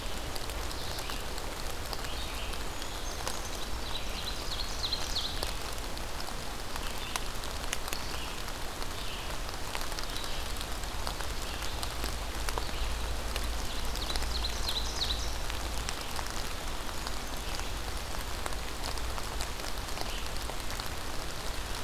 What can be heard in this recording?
Red-eyed Vireo, Brown Creeper, Ovenbird